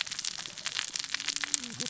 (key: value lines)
label: biophony, cascading saw
recorder: SoundTrap 600 or HydroMoth